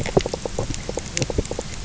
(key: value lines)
label: biophony, knock croak
recorder: SoundTrap 300